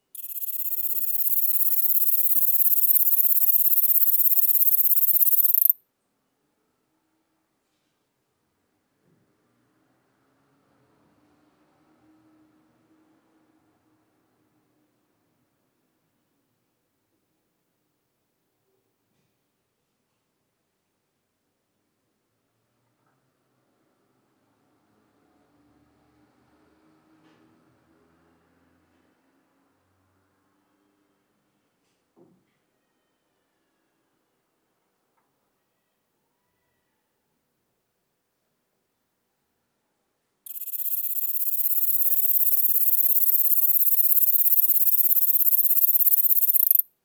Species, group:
Platycleis escalerai, Orthoptera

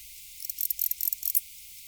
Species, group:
Barbitistes yersini, Orthoptera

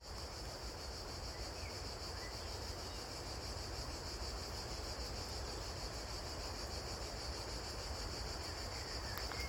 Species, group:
Cicada orni, Cicadidae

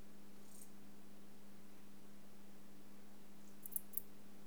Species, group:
Lluciapomaresius stalii, Orthoptera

